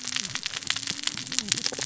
{"label": "biophony, cascading saw", "recorder": "SoundTrap 600 or HydroMoth"}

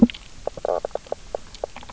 {"label": "biophony, knock croak", "recorder": "SoundTrap 300"}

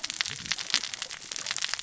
{"label": "biophony, cascading saw", "recorder": "SoundTrap 600 or HydroMoth"}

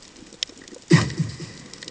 {"label": "anthrophony, bomb", "recorder": "HydroMoth"}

